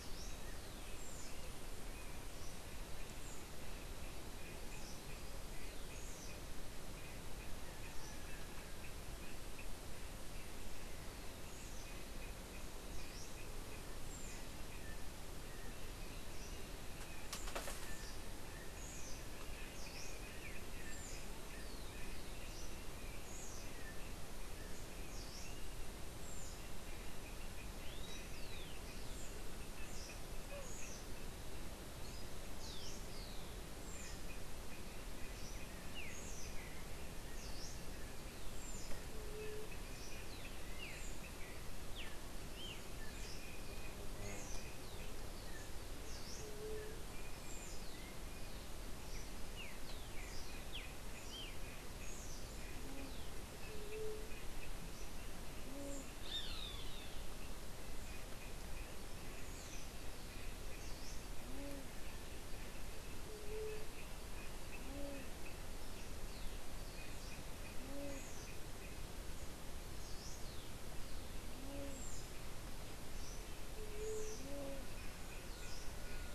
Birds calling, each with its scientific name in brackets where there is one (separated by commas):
unidentified bird, Rufous-collared Sparrow (Zonotrichia capensis), Streaked Saltator (Saltator striatipectus), White-tipped Dove (Leptotila verreauxi), Roadside Hawk (Rupornis magnirostris)